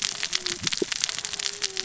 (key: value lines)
label: biophony, cascading saw
recorder: SoundTrap 600 or HydroMoth